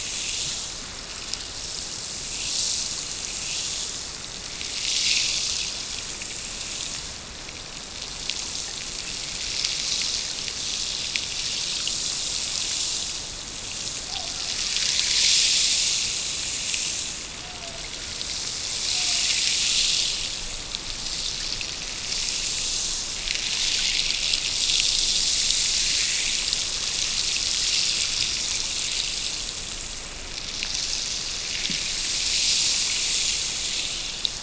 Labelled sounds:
14.0	15.4	killer whale, Bigg's (transient), Gulf of Alaska transient, 0.53 to 1.6 kHz
17.3	18.0	killer whale, Bigg's (transient), Gulf of Alaska transient, 0.50 to 0.96 kHz
18.9	19.4	killer whale, Bigg's (transient), Gulf of Alaska transient, 0.50 to 1.4 kHz

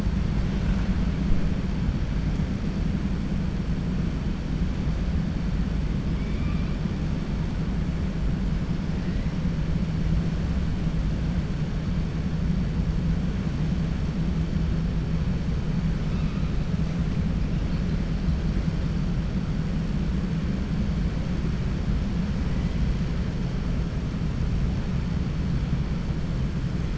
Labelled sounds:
6.1	6.7	killer whale, 1.2 to 3.6 kHz

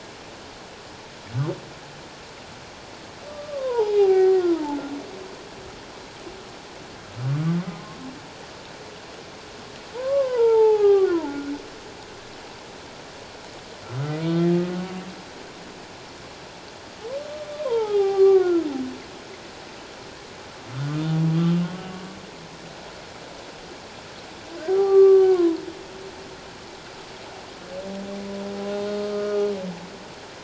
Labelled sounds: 3.5	4.8	humpback whale, 0.78 to 1.2 kHz
9.9	11.5	humpback whale, 0.78 to 1.7 kHz
17.6	18.7	humpback whale, 0.78 to 1.6 kHz
24.7	25.6	humpback whale, 0.78 to 1.6 kHz
28.7	29.4	humpback whale, 1.2 to 4.2 kHz

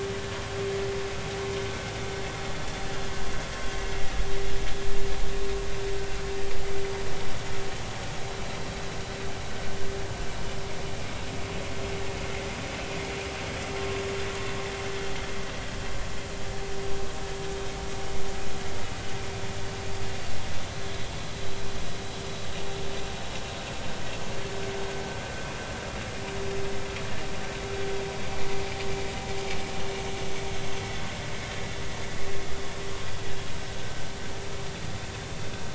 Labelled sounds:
5.2	5.5	vessel noise, 3.6 to 3.7 kHz

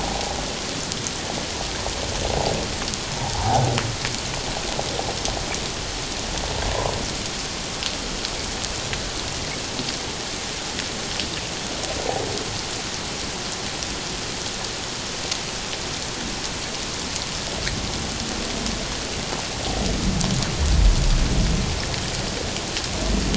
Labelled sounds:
3.3	3.6	humpback whale, 0.78 to 1.1 kHz

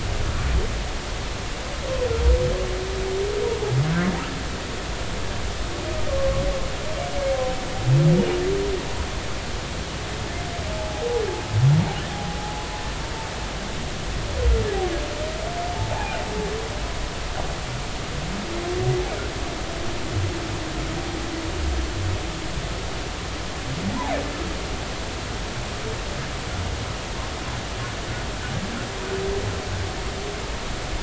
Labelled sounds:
7.2	7.4	humpback whale, 1.0 to 1.2 kHz
10.7	11.2	humpback whale, 0.80 to 0.90 kHz
15.7	16.2	humpback whale, 0.80 to 0.99 kHz
23.9	24.2	humpback whale, 0.80 to 1.1 kHz

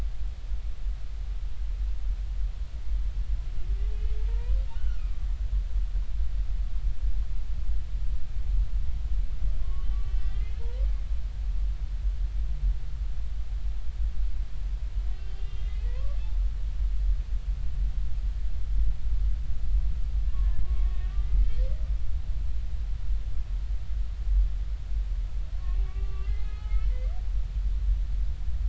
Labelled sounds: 4.3	5.0	humpback whale, 0.90 to 3.1 kHz
9.6	11.0	humpback whale, 0.86 to 3.2 kHz
15.3	16.2	humpback whale, 0.83 to 3.6 kHz
20.3	21.4	humpback whale, 0.99 to 2.0 kHz
25.8	26.9	humpback whale, 1.1 to 3.1 kHz

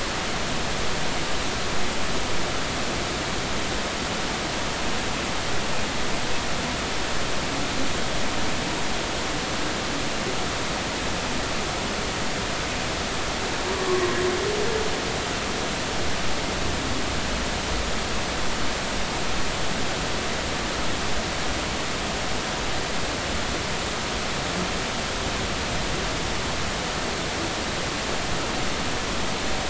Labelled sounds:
13.7	14.1	humpback whale, 0.96 to 1.2 kHz

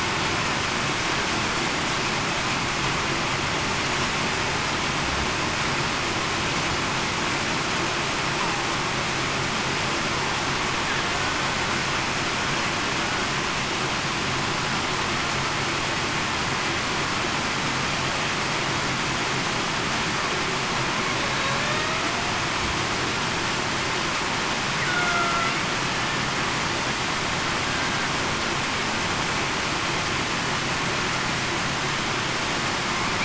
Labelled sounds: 24.8	25.5	killer whale, Bigg's (transient), 0.66 to 1.5 kHz

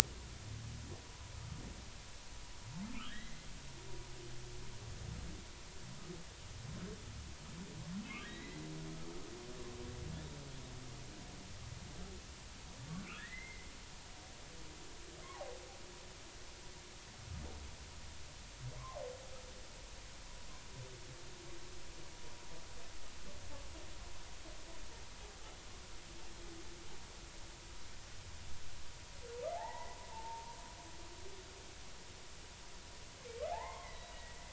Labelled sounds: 3.1	3.5	humpback whale, 1.6 to 2.1 kHz
8.0	8.6	humpback whale, 1.5 to 4.1 kHz
13.2	13.7	humpback whale, 1.6 to 2.2 kHz
15.2	15.6	humpback whale, 0.80 to 1.2 kHz
29.5	30.5	humpback whale, 0.80 to 2.0 kHz
33.5	34.1	humpback whale, 0.80 to 4.1 kHz

